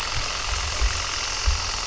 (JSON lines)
{"label": "anthrophony, boat engine", "recorder": "SoundTrap 300"}